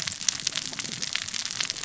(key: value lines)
label: biophony, cascading saw
recorder: SoundTrap 600 or HydroMoth